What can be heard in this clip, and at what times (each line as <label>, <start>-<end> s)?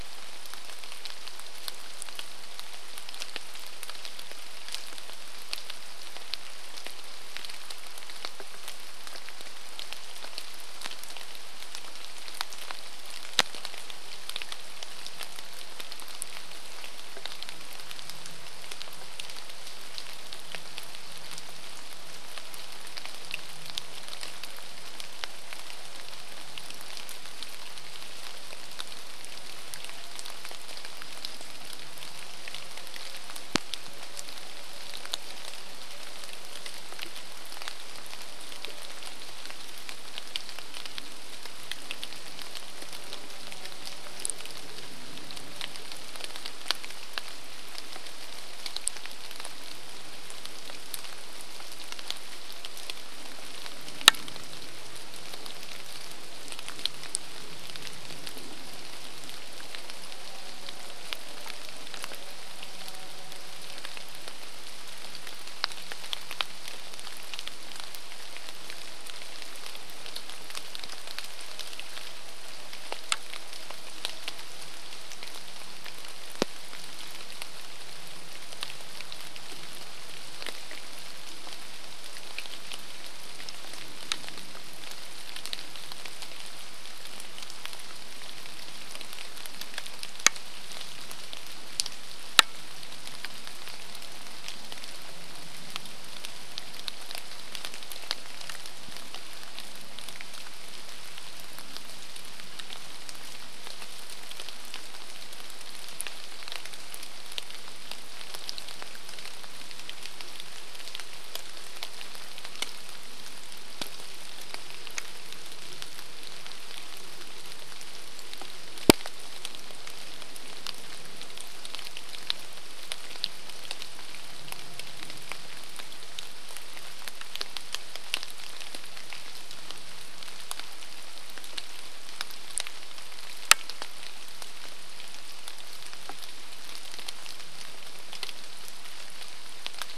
rain, 0-140 s
chainsaw, 28-40 s
chainsaw, 42-46 s
chainsaw, 60-66 s
Common Raven call, 72-74 s